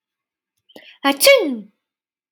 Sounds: Sneeze